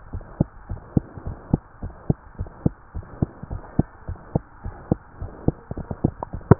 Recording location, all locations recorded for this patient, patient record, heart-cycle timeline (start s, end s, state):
tricuspid valve (TV)
aortic valve (AV)+pulmonary valve (PV)+tricuspid valve (TV)+mitral valve (MV)
#Age: Child
#Sex: Male
#Height: 98.0 cm
#Weight: 15.9 kg
#Pregnancy status: False
#Murmur: Present
#Murmur locations: tricuspid valve (TV)
#Most audible location: tricuspid valve (TV)
#Systolic murmur timing: Holosystolic
#Systolic murmur shape: Plateau
#Systolic murmur grading: I/VI
#Systolic murmur pitch: Low
#Systolic murmur quality: Blowing
#Diastolic murmur timing: nan
#Diastolic murmur shape: nan
#Diastolic murmur grading: nan
#Diastolic murmur pitch: nan
#Diastolic murmur quality: nan
#Outcome: Abnormal
#Campaign: 2015 screening campaign
0.00	0.11	unannotated
0.11	0.24	S1
0.24	0.36	systole
0.36	0.50	S2
0.50	0.70	diastole
0.70	0.82	S1
0.82	0.92	systole
0.92	1.04	S2
1.04	1.24	diastole
1.24	1.38	S1
1.38	1.52	systole
1.52	1.64	S2
1.64	1.82	diastole
1.82	1.94	S1
1.94	2.06	systole
2.06	2.20	S2
2.20	2.40	diastole
2.40	2.52	S1
2.52	2.62	systole
2.62	2.74	S2
2.74	2.96	diastole
2.96	3.06	S1
3.06	3.20	systole
3.20	3.30	S2
3.30	3.50	diastole
3.50	3.64	S1
3.64	3.78	systole
3.78	3.88	S2
3.88	4.08	diastole
4.08	4.18	S1
4.18	4.34	systole
4.34	4.44	S2
4.44	4.64	diastole
4.64	4.78	S1
4.78	4.90	systole
4.90	5.00	S2
5.00	5.20	diastole
5.20	5.34	S1
5.34	5.46	systole
5.46	5.58	S2
5.58	6.59	unannotated